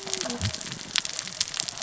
{"label": "biophony, cascading saw", "recorder": "SoundTrap 600 or HydroMoth"}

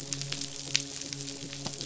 {"label": "biophony", "recorder": "SoundTrap 500"}
{"label": "biophony, midshipman", "recorder": "SoundTrap 500"}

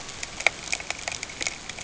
{"label": "ambient", "recorder": "HydroMoth"}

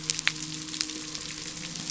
{"label": "biophony", "recorder": "SoundTrap 300"}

